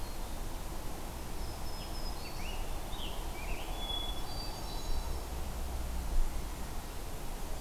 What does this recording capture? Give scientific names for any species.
Setophaga virens, Piranga olivacea, Catharus guttatus